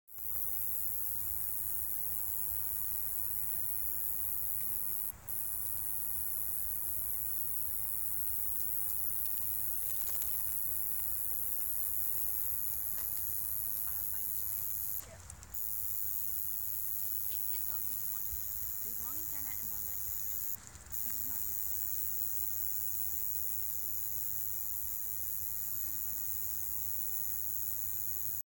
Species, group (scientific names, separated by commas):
Roeseliana roeselii, Orthoptera